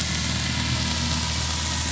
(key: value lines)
label: anthrophony, boat engine
recorder: SoundTrap 500